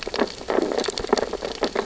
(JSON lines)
{"label": "biophony, sea urchins (Echinidae)", "recorder": "SoundTrap 600 or HydroMoth"}
{"label": "biophony, stridulation", "recorder": "SoundTrap 600 or HydroMoth"}